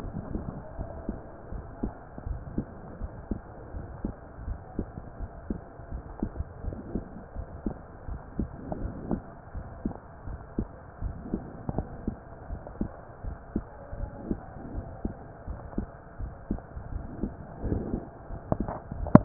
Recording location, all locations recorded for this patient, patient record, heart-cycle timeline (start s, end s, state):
pulmonary valve (PV)
aortic valve (AV)+pulmonary valve (PV)+tricuspid valve (TV)+mitral valve (MV)
#Age: Child
#Sex: Female
#Height: 139.0 cm
#Weight: 28.3 kg
#Pregnancy status: False
#Murmur: Absent
#Murmur locations: nan
#Most audible location: nan
#Systolic murmur timing: nan
#Systolic murmur shape: nan
#Systolic murmur grading: nan
#Systolic murmur pitch: nan
#Systolic murmur quality: nan
#Diastolic murmur timing: nan
#Diastolic murmur shape: nan
#Diastolic murmur grading: nan
#Diastolic murmur pitch: nan
#Diastolic murmur quality: nan
#Outcome: Abnormal
#Campaign: 2015 screening campaign
0.00	1.48	unannotated
1.48	1.64	S1
1.64	1.82	systole
1.82	1.94	S2
1.94	2.23	diastole
2.23	2.42	S1
2.42	2.55	systole
2.55	2.68	S2
2.68	2.97	diastole
2.97	3.12	S1
3.12	3.26	systole
3.26	3.40	S2
3.40	3.72	diastole
3.72	3.86	S1
3.86	3.99	systole
3.99	4.14	S2
4.14	4.42	diastole
4.42	4.56	S1
4.56	4.73	systole
4.73	4.88	S2
4.88	5.18	diastole
5.18	5.32	S1
5.32	5.45	systole
5.45	5.58	S2
5.58	5.88	diastole
5.88	6.04	S1
6.04	6.18	systole
6.18	6.32	S2
6.32	6.61	diastole
6.61	6.78	S1
6.78	6.91	systole
6.91	7.04	S2
7.04	7.33	diastole
7.33	7.48	S1
7.48	7.62	systole
7.62	7.76	S2
7.76	8.04	diastole
8.04	8.20	S1
8.20	8.35	systole
8.35	8.50	S2
8.50	8.77	diastole
8.77	8.94	S1
8.94	9.08	systole
9.08	9.22	S2
9.22	9.51	diastole
9.51	9.66	S1
9.66	9.82	systole
9.82	9.94	S2
9.94	10.24	diastole
10.24	10.40	S1
10.40	10.55	systole
10.55	10.68	S2
10.68	10.99	diastole
10.99	11.16	S1
11.16	11.30	systole
11.30	11.44	S2
11.44	11.71	diastole
11.71	11.86	S1
11.86	12.04	systole
12.04	12.16	S2
12.16	12.46	diastole
12.46	12.62	S1
12.62	12.77	systole
12.77	12.90	S2
12.90	13.21	diastole
13.21	13.36	S1
13.36	13.51	systole
13.51	13.66	S2
13.66	13.94	diastole
13.94	14.10	S1
14.10	14.26	systole
14.26	14.40	S2
14.40	14.70	diastole
14.70	14.86	S1
14.86	15.01	systole
15.01	15.14	S2
15.14	15.43	diastole
15.43	15.60	S1
15.60	15.75	systole
15.75	15.88	S2
15.88	16.17	diastole
16.17	16.34	S1
16.34	16.49	systole
16.49	16.60	S2
16.60	16.88	diastole
16.88	17.04	S1
17.04	17.18	systole
17.18	17.32	S2
17.32	19.25	unannotated